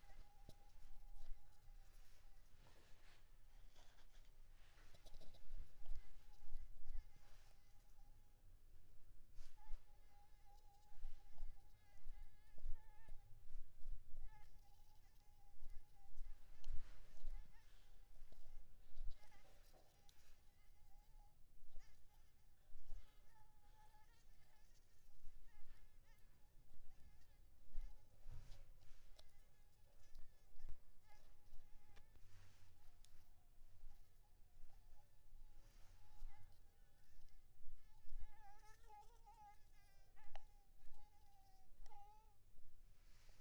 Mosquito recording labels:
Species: Anopheles maculipalpis; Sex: female; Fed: unfed; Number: one; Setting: cup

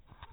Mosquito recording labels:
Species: no mosquito; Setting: cup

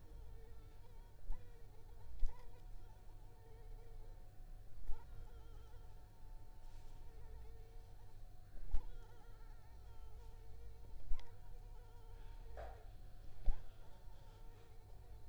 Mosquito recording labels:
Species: Anopheles arabiensis; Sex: female; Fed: unfed; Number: one; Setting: cup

